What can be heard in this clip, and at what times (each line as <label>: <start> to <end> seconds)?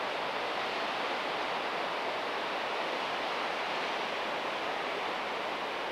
Golden-crowned Kinglet song: 4 to 6 seconds